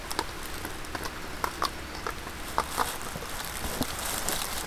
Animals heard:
forest ambience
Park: Hubbard Brook Experimental Forest